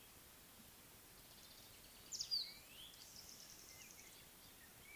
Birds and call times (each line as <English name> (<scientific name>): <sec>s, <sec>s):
Baglafecht Weaver (Ploceus baglafecht): 2.2s